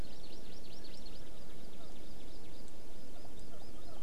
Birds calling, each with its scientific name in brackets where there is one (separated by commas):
Hawaii Amakihi (Chlorodrepanis virens)